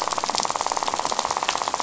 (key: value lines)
label: biophony, rattle
recorder: SoundTrap 500